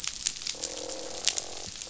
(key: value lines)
label: biophony, croak
recorder: SoundTrap 500